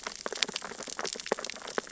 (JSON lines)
{"label": "biophony, sea urchins (Echinidae)", "recorder": "SoundTrap 600 or HydroMoth"}